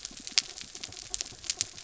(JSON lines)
{"label": "anthrophony, mechanical", "recorder": "SoundTrap 300"}